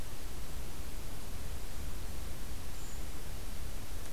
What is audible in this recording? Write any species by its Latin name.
Certhia americana